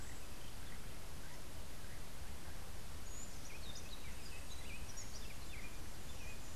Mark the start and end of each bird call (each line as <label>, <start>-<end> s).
Buff-throated Saltator (Saltator maximus), 2.9-6.5 s